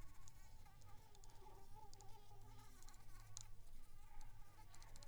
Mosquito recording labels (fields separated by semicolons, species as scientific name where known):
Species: Anopheles squamosus; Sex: female; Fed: unfed; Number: one; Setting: cup